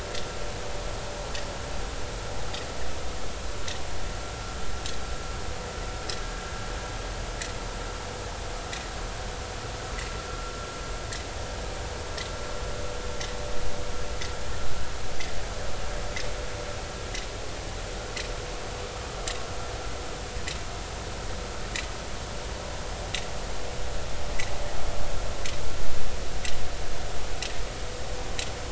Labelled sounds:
11.3	11.5	vessel noise, 1.3 to 1.4 kHz

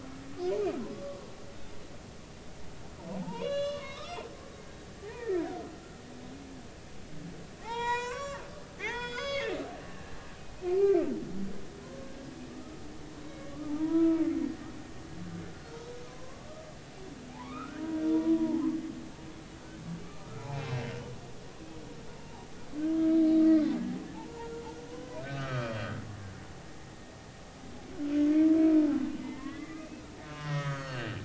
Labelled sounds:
3.2	4.2	humpback whale, 0.80 to 6.6 kHz
5.0	5.4	humpback whale, 0.80 to 2.1 kHz
7.6	8.4	humpback whale, 0.80 to 7.6 kHz
8.8	10.1	humpback whale, 0.80 to 6.8 kHz
10.8	11.0	humpback whale, 2.3 to 2.5 kHz
11.8	12.8	humpback whale, 0.96 to 1.4 kHz
13.2	14.2	humpback whale, 0.83 to 2.2 kHz
15.6	16.5	humpback whale, 0.99 to 4.4 kHz
17.3	17.8	humpback whale, 0.80 to 2.6 kHz
18.1	18.6	humpback whale, 0.80 to 1.0 kHz
20.5	20.9	humpback whale, 2.3 to 2.8 kHz
22.2	23.2	humpback whale, 0.80 to 1.3 kHz
23.5	23.8	humpback whale, 0.96 to 4.2 kHz
24.1	26.0	humpback whale, 0.80 to 3.3 kHz
29.2	31.2	humpback whale, 0.96 to 6.7 kHz

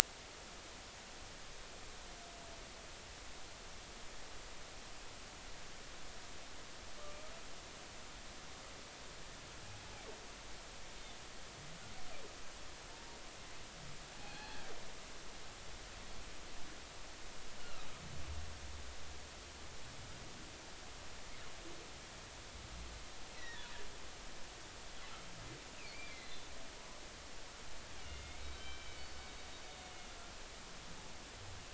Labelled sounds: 14.1	14.6	humpback whale, 0.80 to 2.6 kHz
17.6	17.9	humpback whale, 1.2 to 2.9 kHz
23.4	23.7	humpback whale, 1.4 to 2.1 kHz
25.8	26.4	humpback whale, 2.0 to 4.3 kHz
28.1	29.1	humpback whale, 1.5 to 3.6 kHz
29.6	29.9	humpback whale, 3.6 to 3.7 kHz

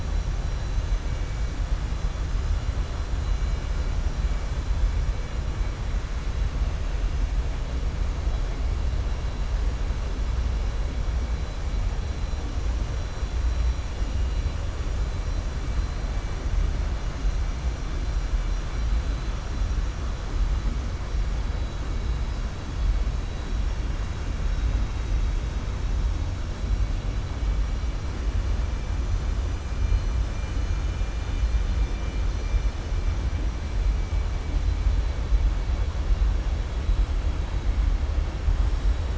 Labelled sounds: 34.5	35.2	vessel noise, 3.4 to 4.6 kHz

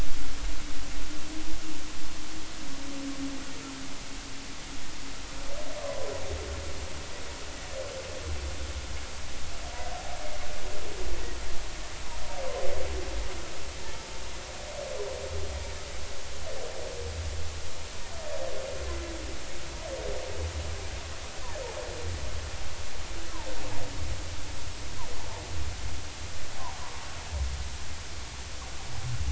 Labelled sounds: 5.8	6.1	humpback whale, 0.96 to 1.2 kHz
26.8	27.0	humpback whale, 0.93 to 1.2 kHz

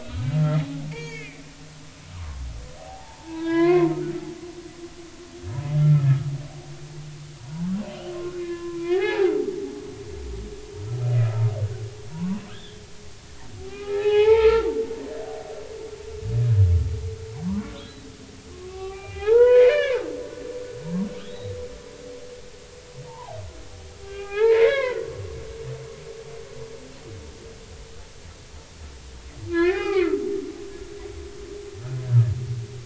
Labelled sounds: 0.0	0.3	humpback whale, 3.7 to 4.0 kHz
0.9	1.4	humpback whale, 1.7 to 4.7 kHz
2.1	3.9	humpback whale, 0.80 to 3.8 kHz
5.8	6.1	humpback whale, 1.2 to 1.4 kHz
7.4	9.3	humpback whale, 0.80 to 3.5 kHz
12.1	12.8	humpback whale, 0.83 to 3.7 kHz
13.7	15.4	humpback whale, 0.80 to 3.0 kHz
17.5	20.1	humpback whale, 0.80 to 3.0 kHz
21.3	21.5	humpback whale, 3.5 to 4.0 kHz
23.0	23.4	humpback whale, 0.80 to 1.1 kHz
24.1	25.1	humpback whale, 0.80 to 4.6 kHz
29.5	30.1	humpback whale, 0.80 to 2.6 kHz

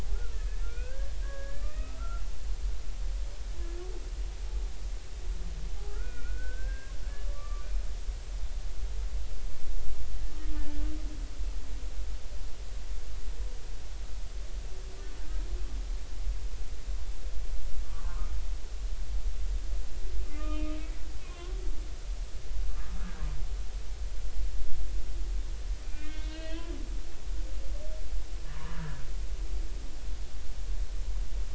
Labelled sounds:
0.1	2.2	humpback whale, 1.2 to 2.7 kHz
5.9	7.7	humpback whale, 1.1 to 2.5 kHz
10.6	10.8	humpback whale, 1.7 to 1.8 kHz
17.8	18.3	humpback whale, 0.99 to 1.3 kHz
20.3	21.6	humpback whale, 0.99 to 2.7 kHz
22.7	23.0	humpback whale, 1.2 to 1.3 kHz
25.8	26.7	humpback whale, 1.8 to 4.5 kHz
28.5	29.0	humpback whale, 0.93 to 1.8 kHz

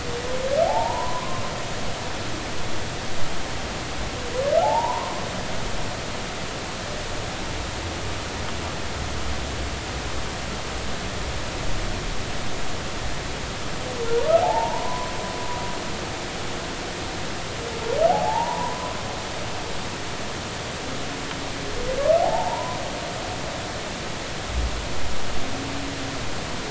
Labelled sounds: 0.7	1.4	humpback whale, 0.80 to 1.1 kHz
4.6	5.2	humpback whale, 0.80 to 1.1 kHz
14.4	15.1	humpback whale, 0.80 to 1.1 kHz
18.1	19.0	humpback whale, 0.80 to 1.1 kHz
22.2	22.8	humpback whale, 0.80 to 1.1 kHz

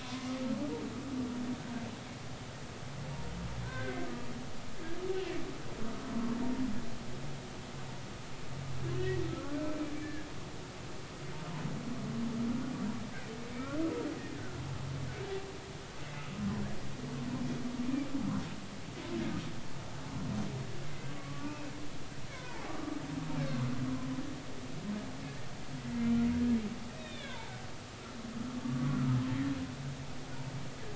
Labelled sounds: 0.0	0.3	humpback whale, 0.93 to 1.1 kHz
3.6	4.0	humpback whale, 1.5 to 2.2 kHz
5.1	5.4	humpback whale, 2.6 to 2.8 kHz
9.3	9.5	humpback whale, 1.2 to 1.5 kHz
10.0	10.3	humpback whale, 1.6 to 1.8 kHz
16.0	16.3	humpback whale, 2.6 to 2.7 kHz
20.8	21.6	humpback whale, 1.1 to 2.2 kHz
22.3	22.7	humpback whale, 0.80 to 2.3 kHz
27.0	27.5	humpback whale, 0.83 to 3.9 kHz
28.0	29.2	humpback whale, 0.96 to 2.6 kHz

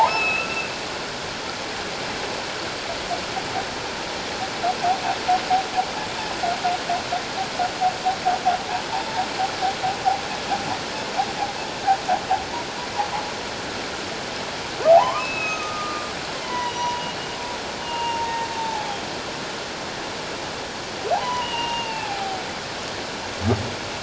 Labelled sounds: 0.0	0.7	humpback whale, 1.2 to 5.3 kHz
14.9	16.1	humpback whale, 0.78 to 4.0 kHz
16.4	19.1	humpback whale, 0.78 to 3.4 kHz
21.1	22.4	humpback whale, 0.78 to 3.1 kHz

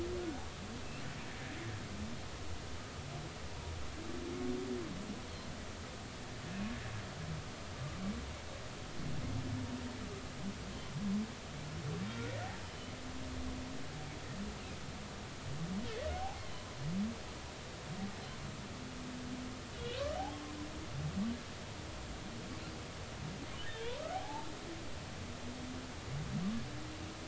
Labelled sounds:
7.7	8.0	humpback whale, 1.1 to 1.2 kHz
12.6	12.9	humpback whale, 2.9 to 3.1 kHz
16.2	16.4	humpback whale, 0.80 to 0.93 kHz
19.7	20.0	humpback whale, 2.8 to 3.1 kHz
23.6	24.5	humpback whale, 0.80 to 2.0 kHz

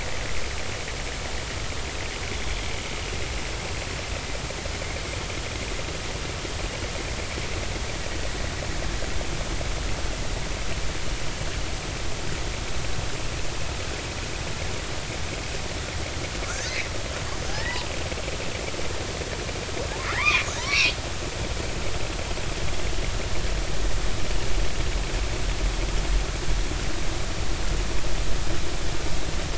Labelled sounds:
17.5	17.8	killer whale, southern resident, J clan, 1.6 to 2.0 kHz
20.0	20.9	killer whale, southern resident, J clan, 0.90 to 2.8 kHz

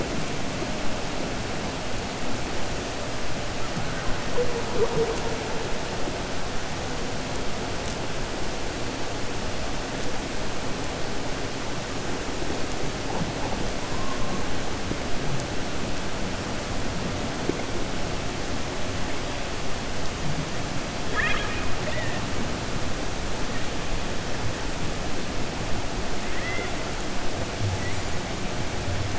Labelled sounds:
21.0	22.2	killer whale, 0.60 to 3.8 kHz

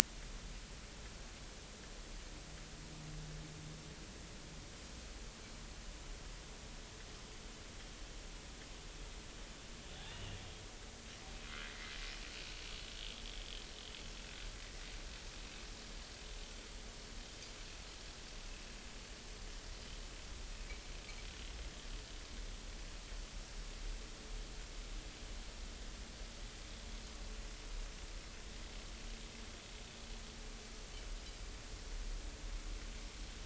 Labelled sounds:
10.0	10.4	vessel noise, 2.6 to 3.0 kHz
14.6	14.8	vessel noise, 1.8 to 2.0 kHz

